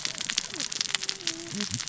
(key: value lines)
label: biophony, cascading saw
recorder: SoundTrap 600 or HydroMoth